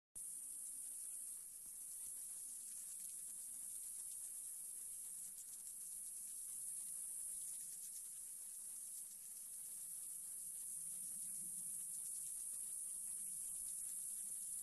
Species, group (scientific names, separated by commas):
Platypedia putnami, Cicadidae